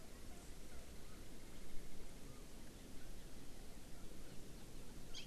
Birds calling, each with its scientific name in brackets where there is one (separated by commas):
Hawaii Amakihi (Chlorodrepanis virens)